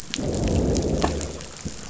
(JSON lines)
{"label": "biophony, growl", "recorder": "SoundTrap 500"}